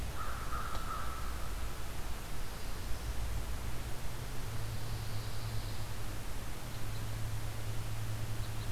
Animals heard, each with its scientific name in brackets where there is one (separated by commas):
Pine Warbler (Setophaga pinus), American Crow (Corvus brachyrhynchos), Black-throated Blue Warbler (Setophaga caerulescens)